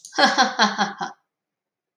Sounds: Laughter